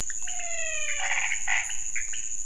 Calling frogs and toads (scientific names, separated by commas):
Physalaemus albonotatus, Leptodactylus podicipinus, Boana raniceps